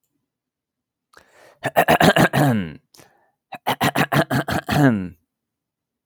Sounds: Throat clearing